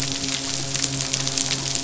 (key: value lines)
label: biophony, midshipman
recorder: SoundTrap 500